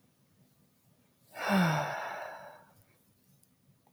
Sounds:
Sigh